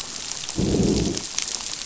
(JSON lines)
{"label": "biophony, growl", "recorder": "SoundTrap 500"}